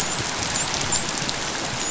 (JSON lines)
{"label": "biophony, dolphin", "recorder": "SoundTrap 500"}